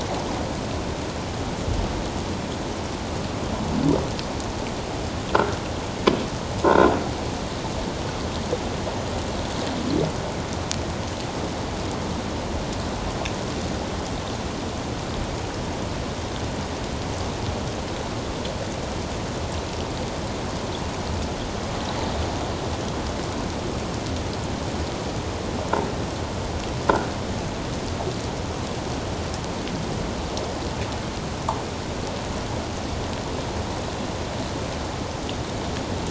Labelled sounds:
6.6	6.9	croaking sound likely from a nearby submerged object, 1.3 to 1.6 kHz

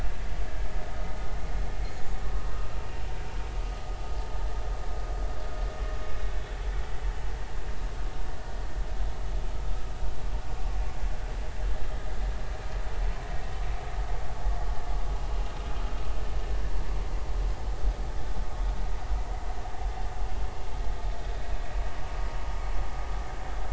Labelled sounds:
15.1	15.4	vessel noise, 2.8 to 2.9 kHz

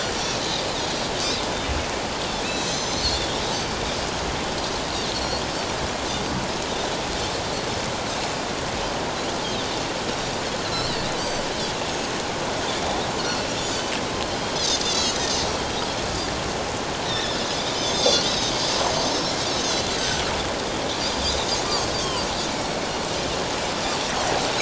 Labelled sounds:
2.4	3.2	Pacific white-sided dolphin, 2.4 to 7.3 kHz
5.1	5.4	Pacific white-sided dolphin, 4.1 to 4.8 kHz
10.6	12.1	Pacific white-sided dolphin, 3.8 to 7.8 kHz
13.2	13.9	Pacific white-sided dolphin, 2.5 to 4.7 kHz
14.5	15.4	Pacific white-sided dolphin, 3.2 to 7.5 kHz
17.1	19.3	Pacific white-sided dolphin, 3.4 to 7.6 kHz
19.6	20.3	Pacific white-sided dolphin, 2.8 to 6.6 kHz
21.2	21.5	Pacific white-sided dolphin, 3.2 to 4.1 kHz
22.0	22.2	Pacific white-sided dolphin, 2.8 to 3.3 kHz

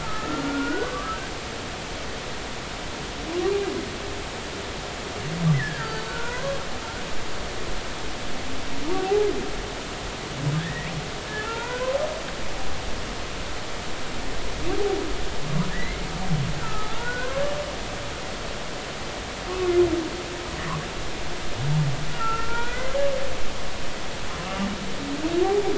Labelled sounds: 0.0	1.3	humpback whale, 1.1 to 1.8 kHz
5.5	6.6	humpback whale, 0.90 to 4.7 kHz
8.9	9.3	humpback whale, 0.80 to 0.90 kHz
10.6	10.9	humpback whale, 1.5 to 2.0 kHz
11.4	11.9	humpback whale, 0.83 to 1.6 kHz
15.7	16.0	humpback whale, 1.6 to 2.2 kHz
16.6	17.3	humpback whale, 1.2 to 1.6 kHz
22.1	22.9	humpback whale, 1.3 to 3.5 kHz
24.4	24.7	humpback whale, 1.1 to 1.4 kHz

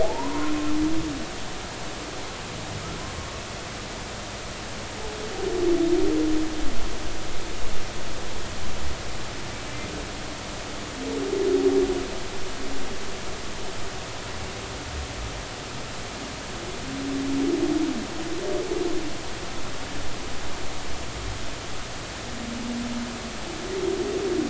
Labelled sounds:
0.0	0.5	humpback whale, 0.80 to 1.1 kHz

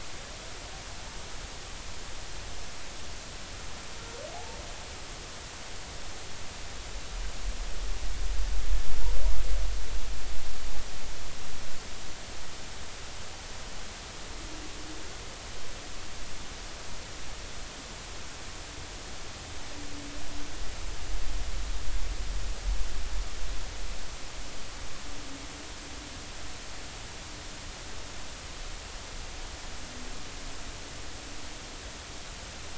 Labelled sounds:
4.3	4.6	humpback whale, 0.80 to 0.96 kHz

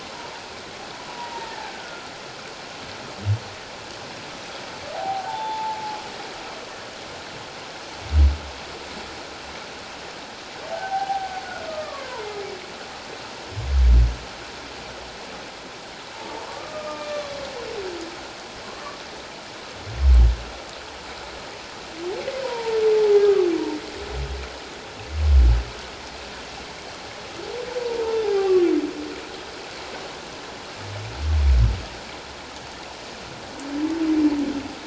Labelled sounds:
0.9	2.1	humpback whale, 0.88 to 1.7 kHz
4.9	6.0	humpback whale, 0.78 to 3.6 kHz
10.7	12.2	humpback whale, 0.78 to 1.7 kHz
16.1	17.4	humpback whale, 0.81 to 3.6 kHz
18.6	19.0	humpback whale, 1.0 to 1.2 kHz
22.4	23.5	humpback whale, 0.78 to 1.3 kHz
27.8	28.7	humpback whale, 0.78 to 1.2 kHz

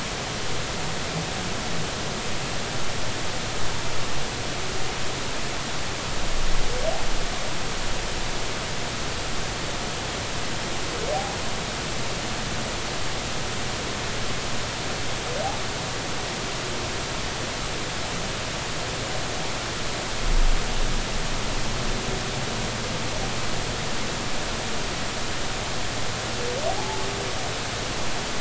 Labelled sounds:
26.8	27.1	humpback whale, 0.80 to 0.93 kHz

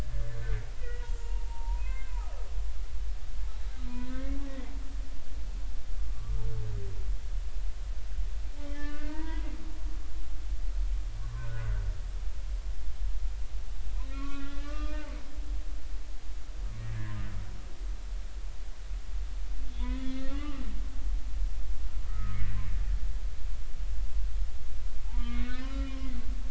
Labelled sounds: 0.1	2.1	humpback whale, 0.86 to 2.7 kHz
3.9	4.7	humpback whale, 0.93 to 2.2 kHz
6.0	6.4	humpback whale, 1.0 to 1.2 kHz
8.7	9.5	humpback whale, 0.86 to 2.7 kHz
11.2	11.8	humpback whale, 0.90 to 1.7 kHz
14.1	15.1	humpback whale, 1.0 to 3.2 kHz
15.3	15.7	humpback whale, 3.6 to 3.8 kHz
19.8	20.6	humpback whale, 1.1 to 4.4 kHz
22.1	22.4	humpback whale, 1.2 to 1.4 kHz
25.0	26.1	humpback whale, 0.80 to 3.0 kHz

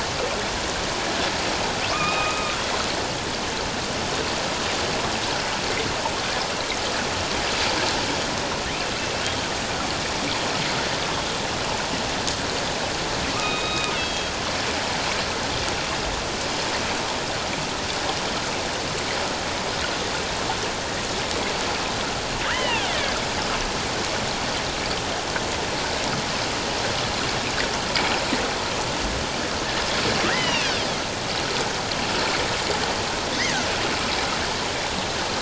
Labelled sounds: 1.9	2.6	killer whale, northern resident, A clan, AB subclan, H01 pod, 1.1 to 3.8 kHz
13.3	14.3	killer whale, northern resident, A clan, AB subclan, H01 pod, 1.0 to 3.8 kHz
22.4	23.2	killer whale, northern resident, A clan, AB subclan, H01 pod, 1.2 to 3.2 kHz
30.3	30.7	killer whale, northern resident, A clan, AB subclan, H01 pod, 1.4 to 5.1 kHz

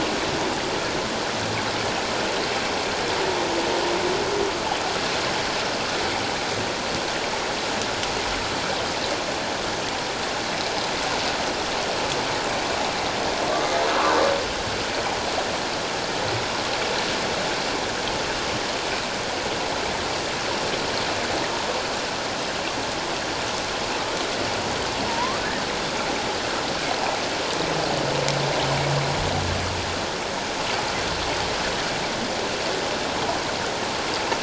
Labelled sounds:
13.5	13.8	humpback whale, 1.1 to 1.2 kHz
25.1	25.4	humpback whale, 0.88 to 1.3 kHz

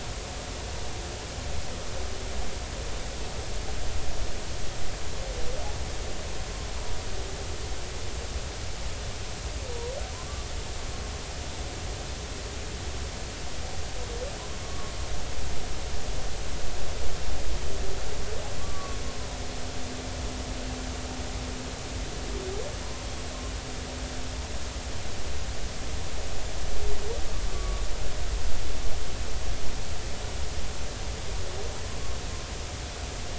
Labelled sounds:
14.6	14.9	humpback whale, 1.0 to 1.2 kHz
18.6	19.0	humpback whale, 1.0 to 1.2 kHz
27.5	27.8	humpback whale, 1.1 to 1.2 kHz

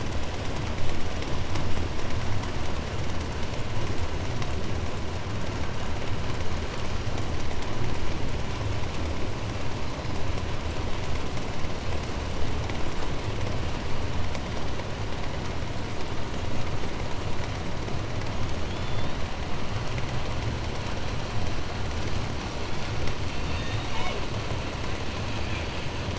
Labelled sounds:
18.5	19.4	killer whale, 2.7 to 7.2 kHz
23.2	24.3	killer whale, southern resident, J pod, call S01, 1.3 to 8.0 kHz

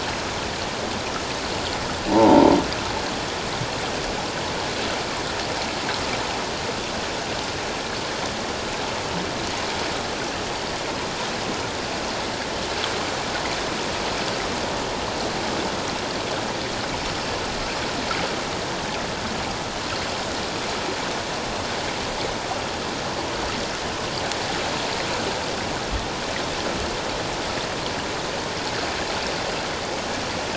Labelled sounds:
2.1	2.5	croaking sound likely from a nearby submerged object, 0.78 to 1.0 kHz

